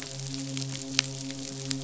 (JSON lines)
{"label": "biophony, midshipman", "recorder": "SoundTrap 500"}